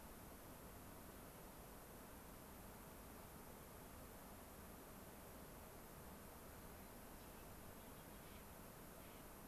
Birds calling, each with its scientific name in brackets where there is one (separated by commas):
Clark's Nutcracker (Nucifraga columbiana)